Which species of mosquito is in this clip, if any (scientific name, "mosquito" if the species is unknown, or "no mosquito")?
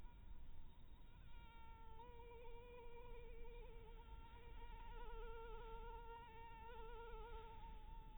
Anopheles harrisoni